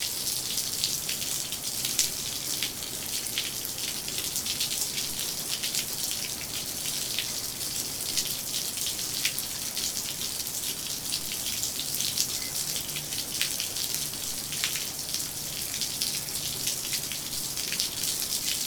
Is this a thunderstorm?
no